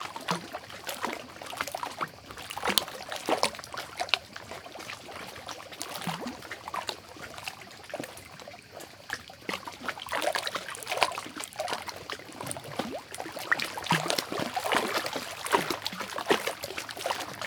Is there someone walking in water?
yes